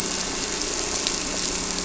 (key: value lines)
label: anthrophony, boat engine
recorder: SoundTrap 300